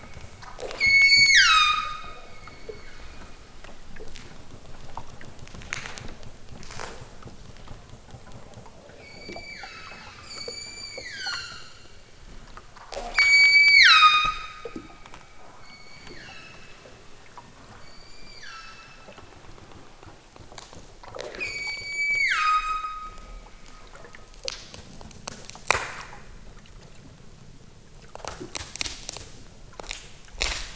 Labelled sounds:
0.7	3.4	killer whale, southern Alaska resident, 0.83 to 8.0 kHz
9.0	11.9	killer whale, southern Alaska resident, 0.92 to 8.0 kHz
13.1	14.6	killer whale, southern Alaska resident, 0.83 to 8.0 kHz
15.6	16.8	killer whale, southern Alaska resident, 1.1 to 7.1 kHz
17.7	19.2	killer whale, southern Alaska resident, 0.97 to 7.4 kHz
21.4	23.4	killer whale, southern Alaska resident, 0.87 to 8.0 kHz

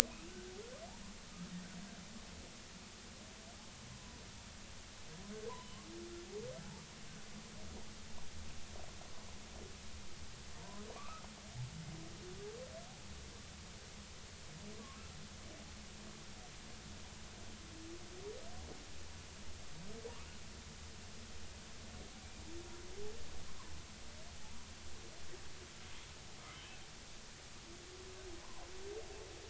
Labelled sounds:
0.1	0.3	humpback whale, 2.4 to 2.8 kHz
3.9	4.2	humpback whale, 0.93 to 1.1 kHz
5.5	5.9	humpback whale, 0.90 to 3.1 kHz
10.6	11.2	humpback whale, 0.86 to 1.3 kHz

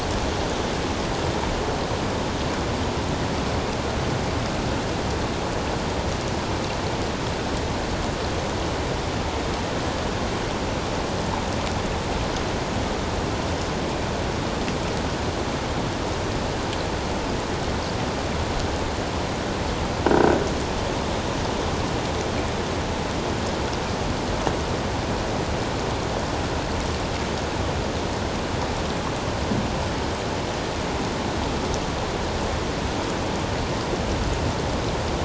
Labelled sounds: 20.1	20.4	croaking sound likely from a nearby submerged object, 1.4 to 1.6 kHz

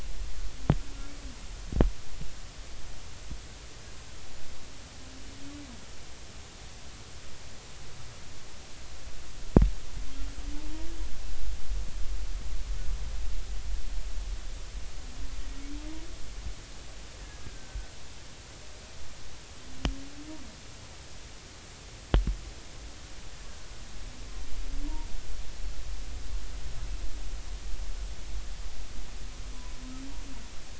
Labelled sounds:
10.5	10.9	humpback whale, 0.83 to 0.99 kHz
17.4	17.9	humpback whale, 1.5 to 1.7 kHz

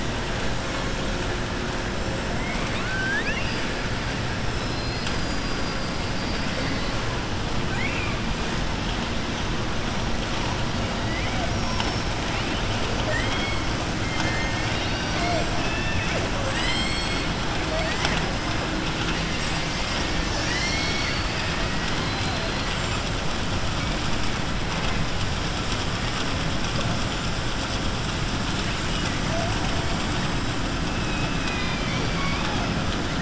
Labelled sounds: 2.3	3.7	killer whale, southern resident, 1.1 to 5.1 kHz
7.6	8.2	killer whale, southern resident, 1.5 to 3.3 kHz
11.5	12.1	killer whale, southern resident, 4.4 to 7.0 kHz
13.0	13.7	killer whale, southern resident, 0.61 to 8.0 kHz
14.0	15.5	killer whale, southern resident, 0.55 to 5.7 kHz
16.4	17.2	killer whale, southern resident, 0.57 to 7.8 kHz
31.0	32.6	killer whale, southern resident, 0.87 to 4.9 kHz

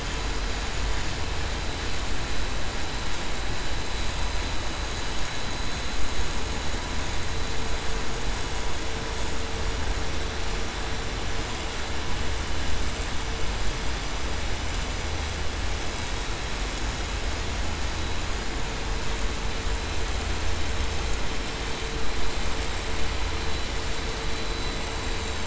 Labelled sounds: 24.4	24.8	vessel noise, 3.9 to 4.0 kHz

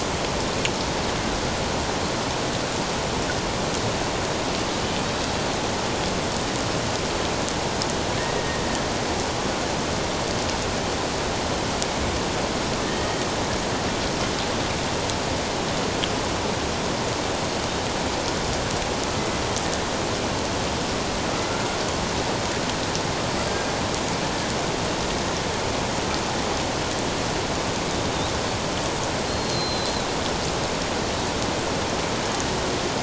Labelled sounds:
12.8	13.2	killer whale, Bigg's (transient), 1.7 to 2.0 kHz
23.5	23.7	killer whale, Bigg's (transient), 1.6 to 1.7 kHz
29.3	29.9	killer whale, Bigg's (transient), 4.0 to 4.3 kHz

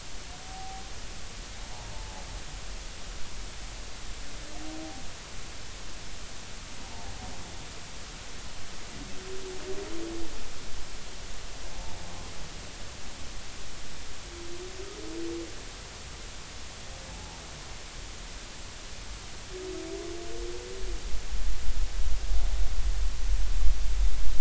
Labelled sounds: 0.4	0.8	humpback whale, 0.80 to 0.86 kHz
1.9	2.2	humpback whale, 0.80 to 0.99 kHz
17.1	17.4	humpback whale, 0.80 to 0.96 kHz

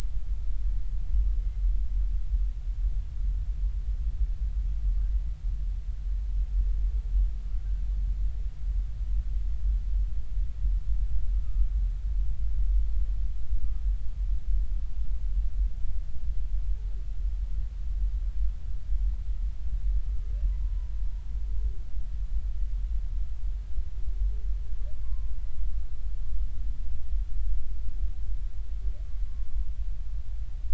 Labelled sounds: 25.0	25.3	humpback whale, 0.99 to 1.1 kHz

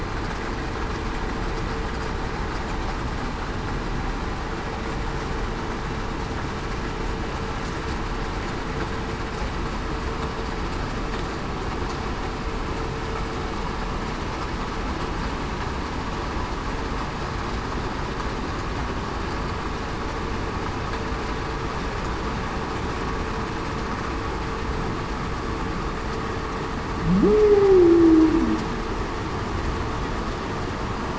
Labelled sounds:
27.1	28.4	humpback whale, 0.19 to 0.47 kHz

